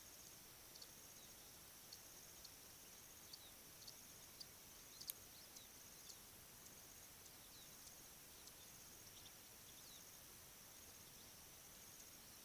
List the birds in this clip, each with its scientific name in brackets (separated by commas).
African Pipit (Anthus cinnamomeus)